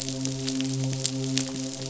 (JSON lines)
{"label": "biophony, midshipman", "recorder": "SoundTrap 500"}